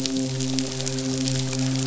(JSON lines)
{"label": "biophony, midshipman", "recorder": "SoundTrap 500"}